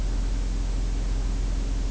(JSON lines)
{"label": "biophony", "recorder": "SoundTrap 300"}